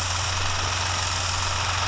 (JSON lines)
{"label": "anthrophony, boat engine", "recorder": "SoundTrap 300"}